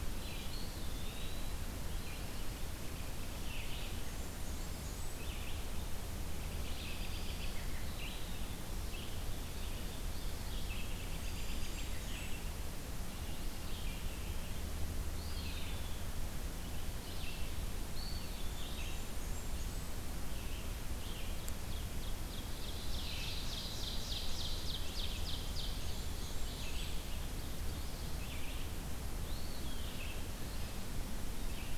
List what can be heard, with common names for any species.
Red-eyed Vireo, Eastern Wood-Pewee, Blackburnian Warbler, American Robin, Ovenbird